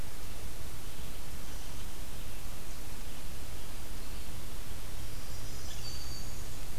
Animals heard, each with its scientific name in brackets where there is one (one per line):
Black-throated Green Warbler (Setophaga virens)
Red-eyed Vireo (Vireo olivaceus)